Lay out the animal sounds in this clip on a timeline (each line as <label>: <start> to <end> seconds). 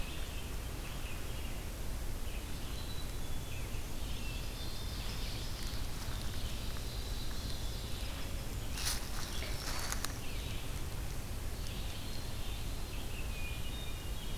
Red-eyed Vireo (Vireo olivaceus): 0.0 to 14.4 seconds
Black-capped Chickadee (Poecile atricapillus): 2.8 to 3.5 seconds
Ovenbird (Seiurus aurocapilla): 3.9 to 5.9 seconds
Black-throated Green Warbler (Setophaga virens): 9.0 to 10.3 seconds
Hermit Thrush (Catharus guttatus): 13.0 to 14.4 seconds